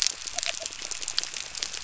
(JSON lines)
{"label": "biophony", "recorder": "SoundTrap 300"}